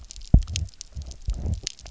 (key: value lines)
label: biophony, double pulse
recorder: SoundTrap 300